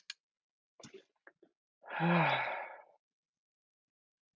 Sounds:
Sigh